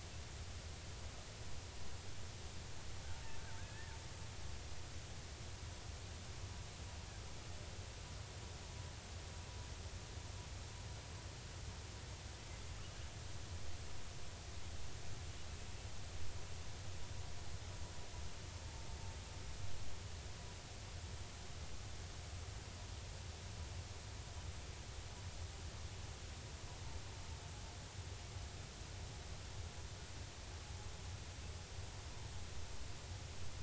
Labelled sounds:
3.6	4.0	killer whale, 1.4 to 1.9 kHz

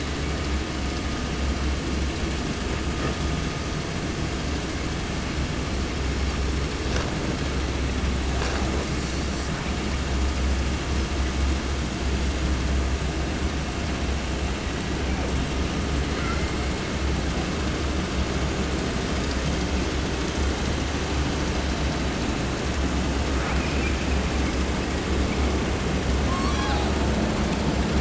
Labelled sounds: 9.6	10.0	killer whale, 1.3 to 2.9 kHz
16.1	16.6	killer whale, 0.30 to 5.7 kHz
23.3	25.7	killer whale, southern resident, 0.30 to 5.9 kHz
26.2	27.1	killer whale, southern resident, 0.30 to 8.0 kHz

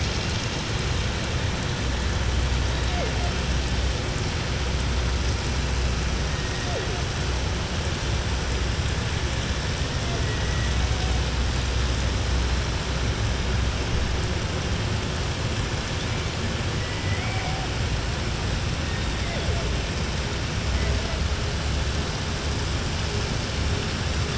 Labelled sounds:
16.8	17.4	killer whale, southern resident, 1.4 to 3.0 kHz

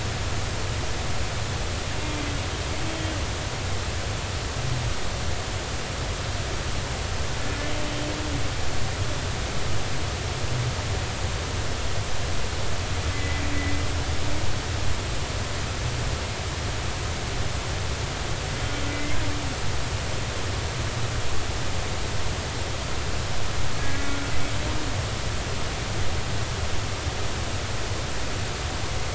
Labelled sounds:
2.8	3.1	humpback whale, 3.1 to 3.3 kHz
13.1	13.4	humpback whale, 1.9 to 2.1 kHz
18.6	19.2	humpback whale, 2.0 to 3.2 kHz

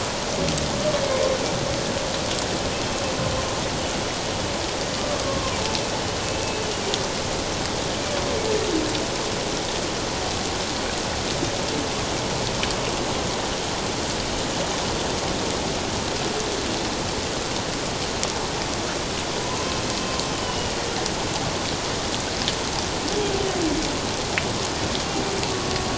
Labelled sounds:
5.1	5.6	humpback whale, 0.97 to 1.2 kHz
20.3	20.7	humpback whale, 2.8 to 3.1 kHz

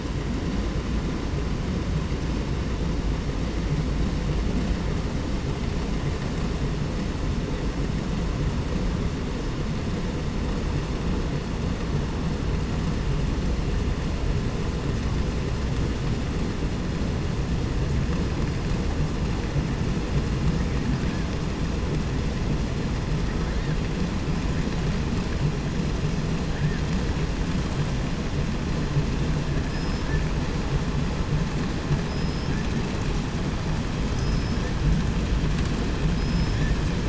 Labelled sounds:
29.5	30.5	killer whale, southern resident, 0.78 to 8.0 kHz
32.0	32.7	killer whale, southern resident, 0.30 to 8.0 kHz
34.0	34.8	killer whale, southern resident, 0.30 to 8.0 kHz
36.1	36.8	killer whale, southern resident, 1.2 to 8.0 kHz

